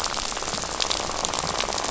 {"label": "biophony, rattle", "recorder": "SoundTrap 500"}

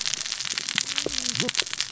{"label": "biophony, cascading saw", "recorder": "SoundTrap 600 or HydroMoth"}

